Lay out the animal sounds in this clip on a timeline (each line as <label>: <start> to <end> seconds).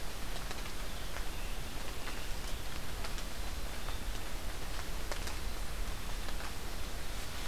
Scarlet Tanager (Piranga olivacea): 0.7 to 2.7 seconds